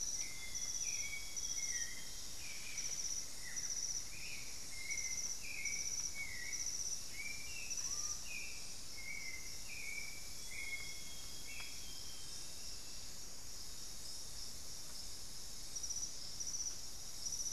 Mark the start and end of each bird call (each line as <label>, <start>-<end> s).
Hauxwell's Thrush (Turdus hauxwelli), 0.0-12.4 s
Amazonian Grosbeak (Cyanoloxia rothschildii), 0.2-2.5 s
Cinnamon-throated Woodcreeper (Dendrexetastes rufigula), 1.9-5.0 s
Screaming Piha (Lipaugus vociferans), 7.6-8.4 s
Amazonian Grosbeak (Cyanoloxia rothschildii), 10.2-12.8 s